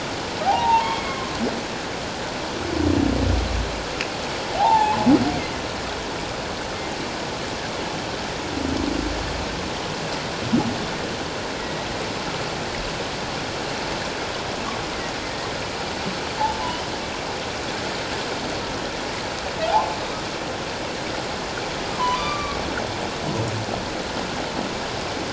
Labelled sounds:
1.0	1.3	humpback whale, 1.0 to 1.2 kHz
4.5	5.0	humpback whale, 0.78 to 3.7 kHz
11.6	11.9	humpback whale, 1.9 to 2.0 kHz
19.7	20.0	humpback whale, 0.78 to 1.1 kHz
22.0	22.6	humpback whale, 0.94 to 1.2 kHz

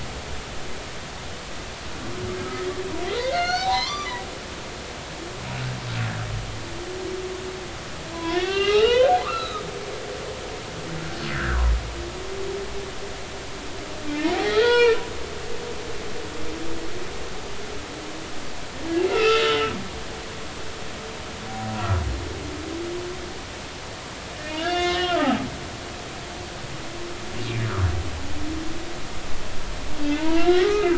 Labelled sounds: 2.4	2.7	humpback whale, 1.2 to 1.3 kHz
3.1	4.2	humpback whale, 0.80 to 6.6 kHz
8.1	9.6	humpback whale, 0.93 to 4.3 kHz
11.3	11.6	humpback whale, 1.2 to 2.1 kHz
14.1	15.0	humpback whale, 0.90 to 3.5 kHz
19.1	19.7	humpback whale, 1.2 to 3.0 kHz
21.8	22.0	humpback whale, 1.2 to 1.4 kHz
24.6	25.5	humpback whale, 0.80 to 6.1 kHz
30.0	30.9	humpback whale, 0.86 to 2.9 kHz

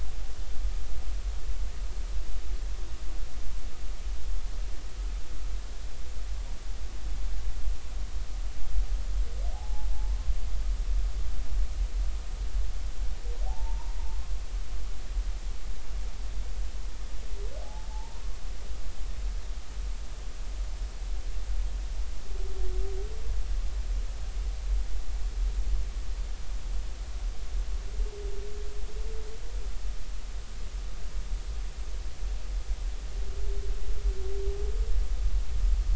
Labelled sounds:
9.5	9.9	humpback whale, 0.80 to 0.93 kHz
13.5	14.0	humpback whale, 0.80 to 1.1 kHz
17.6	18.2	humpback whale, 0.80 to 1.1 kHz

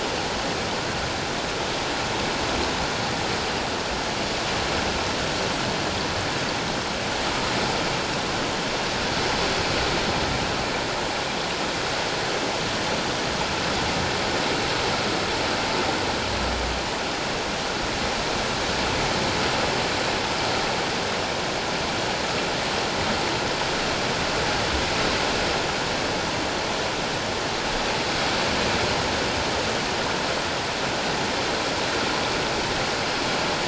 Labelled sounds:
7.3	7.5	water noise, 1.2 to 1.3 kHz

